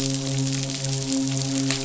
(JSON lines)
{"label": "biophony, midshipman", "recorder": "SoundTrap 500"}